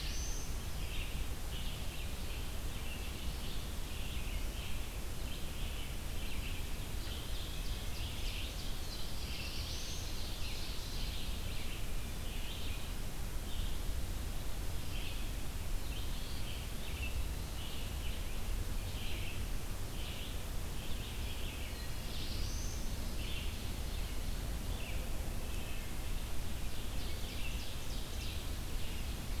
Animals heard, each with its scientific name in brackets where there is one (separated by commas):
Wood Thrush (Hylocichla mustelina), Red-eyed Vireo (Vireo olivaceus), Black-throated Blue Warbler (Setophaga caerulescens), Eastern Wood-Pewee (Contopus virens), Ovenbird (Seiurus aurocapilla)